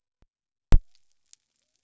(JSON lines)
{"label": "biophony", "recorder": "SoundTrap 300"}